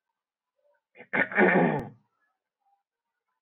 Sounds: Throat clearing